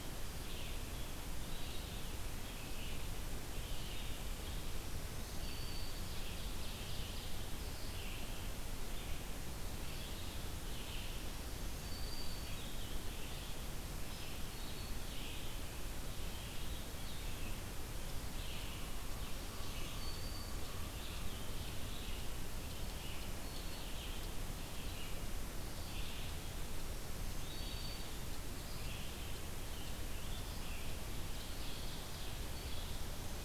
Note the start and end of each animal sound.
0.0s-33.4s: Red-eyed Vireo (Vireo olivaceus)
4.6s-6.2s: Black-throated Green Warbler (Setophaga virens)
5.6s-7.5s: Ovenbird (Seiurus aurocapilla)
11.0s-12.8s: Black-throated Green Warbler (Setophaga virens)
14.3s-15.1s: Black-throated Green Warbler (Setophaga virens)
18.6s-21.4s: American Crow (Corvus brachyrhynchos)
19.1s-20.8s: Black-throated Green Warbler (Setophaga virens)
26.6s-28.5s: Black-throated Green Warbler (Setophaga virens)
31.2s-32.6s: Ovenbird (Seiurus aurocapilla)
32.8s-33.4s: Black-throated Green Warbler (Setophaga virens)

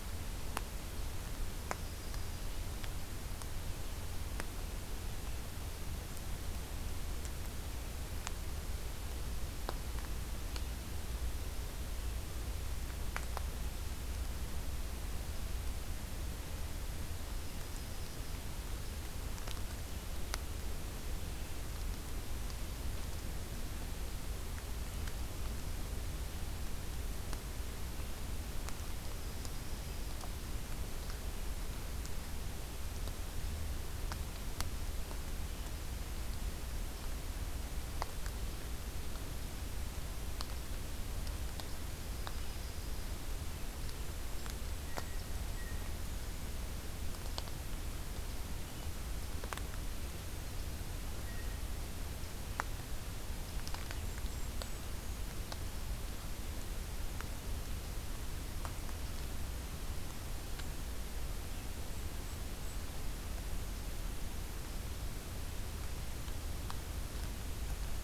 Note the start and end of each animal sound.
1.5s-2.5s: Yellow-rumped Warbler (Setophaga coronata)
17.3s-18.4s: Yellow-rumped Warbler (Setophaga coronata)
28.9s-30.3s: Yellow-rumped Warbler (Setophaga coronata)
41.9s-43.3s: Yellow-rumped Warbler (Setophaga coronata)
43.9s-45.9s: Golden-crowned Kinglet (Regulus satrapa)
44.8s-46.0s: Blue Jay (Cyanocitta cristata)
51.0s-51.7s: Blue Jay (Cyanocitta cristata)
53.8s-54.9s: Golden-crowned Kinglet (Regulus satrapa)

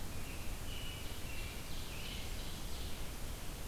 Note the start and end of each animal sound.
0.0s-2.3s: American Robin (Turdus migratorius)
0.3s-3.1s: Ovenbird (Seiurus aurocapilla)

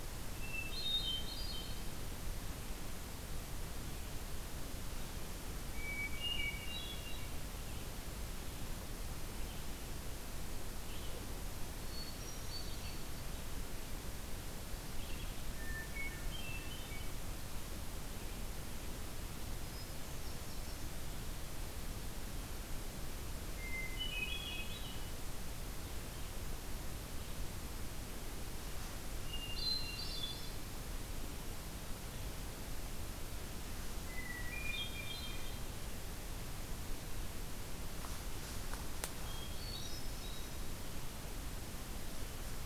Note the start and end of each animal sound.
0.1s-2.0s: Hermit Thrush (Catharus guttatus)
5.6s-7.5s: Hermit Thrush (Catharus guttatus)
8.8s-15.7s: Red-eyed Vireo (Vireo olivaceus)
11.4s-13.6s: Hermit Thrush (Catharus guttatus)
15.3s-17.3s: Hermit Thrush (Catharus guttatus)
19.4s-21.0s: Hermit Thrush (Catharus guttatus)
23.4s-25.3s: Hermit Thrush (Catharus guttatus)
29.0s-30.8s: Hermit Thrush (Catharus guttatus)
34.0s-35.9s: Hermit Thrush (Catharus guttatus)
39.1s-40.8s: Hermit Thrush (Catharus guttatus)

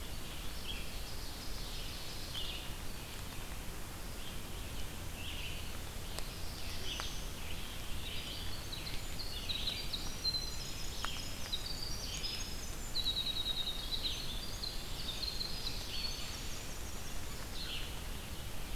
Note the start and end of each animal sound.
0.0s-0.6s: Winter Wren (Troglodytes hiemalis)
0.0s-18.8s: Red-eyed Vireo (Vireo olivaceus)
0.4s-2.7s: Ovenbird (Seiurus aurocapilla)
5.8s-7.5s: Black-throated Blue Warbler (Setophaga caerulescens)
7.8s-18.0s: Winter Wren (Troglodytes hiemalis)

